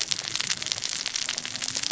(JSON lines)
{"label": "biophony, cascading saw", "recorder": "SoundTrap 600 or HydroMoth"}